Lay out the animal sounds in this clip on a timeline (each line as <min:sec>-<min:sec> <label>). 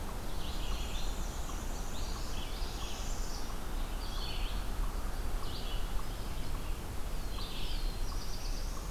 0:00.0-0:08.9 Red-eyed Vireo (Vireo olivaceus)
0:00.3-0:02.5 Black-and-white Warbler (Mniotilta varia)
0:02.5-0:03.5 Northern Parula (Setophaga americana)
0:06.9-0:08.9 Black-throated Blue Warbler (Setophaga caerulescens)